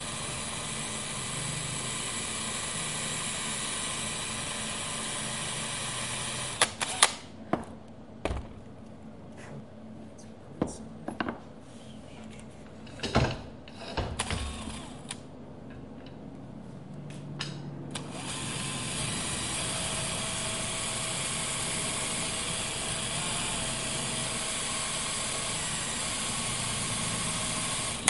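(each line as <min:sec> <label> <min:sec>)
0:00.0 A small hand drill piercing metal rods. 0:06.6
0:06.6 A small hand drill turns off. 0:07.2
0:07.5 Someone puts something away. 0:08.7
0:10.5 A small object hits with a dull metallic sound. 0:11.4
0:12.9 A dull metallic sound of an object hitting something. 0:13.8
0:13.9 A drill is making noise. 0:15.3
0:17.9 A small hand drill piercing metal rods. 0:28.1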